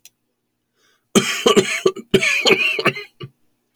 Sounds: Cough